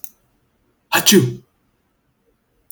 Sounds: Sneeze